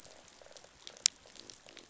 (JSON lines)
{"label": "biophony", "recorder": "SoundTrap 500"}